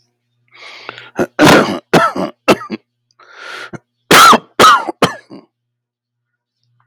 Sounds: Cough